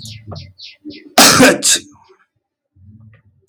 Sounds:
Sneeze